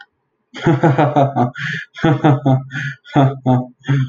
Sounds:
Laughter